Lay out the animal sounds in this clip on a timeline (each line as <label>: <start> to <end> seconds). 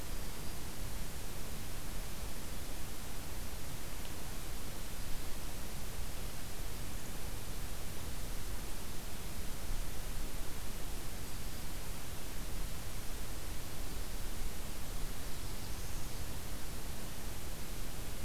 Black-throated Green Warbler (Setophaga virens): 0.0 to 0.7 seconds
Black-throated Green Warbler (Setophaga virens): 11.0 to 11.9 seconds
Northern Parula (Setophaga americana): 15.0 to 16.3 seconds